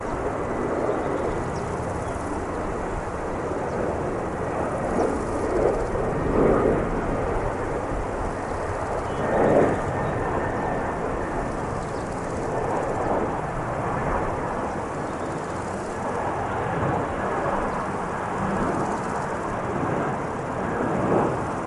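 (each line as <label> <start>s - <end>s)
A continuous "ffffffffff" sound in an outdoor natural setting. 0.1s - 3.2s
A continuous "ffffffffff" sound with varying pitch, recorded outdoors in nature. 3.3s - 8.2s
A continuous "ffffffffff" sound in an outdoor natural setting. 8.2s - 8.8s
A continuous "ffffffffff" sound with varying pitch, recorded outdoors in nature. 8.9s - 10.1s
A continuous "ffffffffff" sound in an outdoor natural setting. 10.3s - 21.7s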